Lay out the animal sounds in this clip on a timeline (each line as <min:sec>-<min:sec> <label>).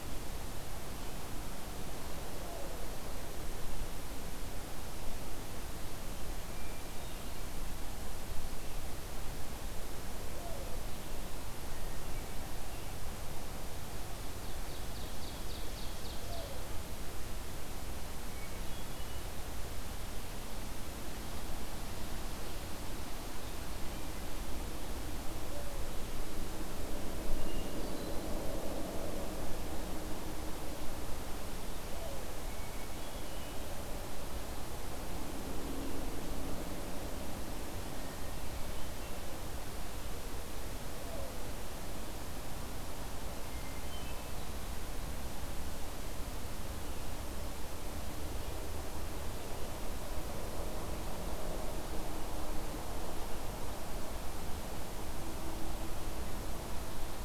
0:06.5-0:07.5 Hermit Thrush (Catharus guttatus)
0:14.1-0:16.6 Ovenbird (Seiurus aurocapilla)
0:18.1-0:19.3 Hermit Thrush (Catharus guttatus)
0:27.4-0:28.3 Hermit Thrush (Catharus guttatus)
0:32.5-0:33.7 Hermit Thrush (Catharus guttatus)
0:43.3-0:44.4 Hermit Thrush (Catharus guttatus)